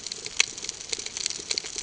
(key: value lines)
label: ambient
recorder: HydroMoth